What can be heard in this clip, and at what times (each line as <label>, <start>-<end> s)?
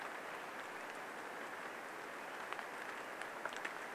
Swainson's Thrush call, 0-2 s
rain, 0-4 s